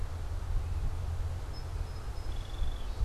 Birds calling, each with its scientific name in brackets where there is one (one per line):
Song Sparrow (Melospiza melodia)